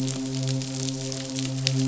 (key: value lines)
label: biophony, midshipman
recorder: SoundTrap 500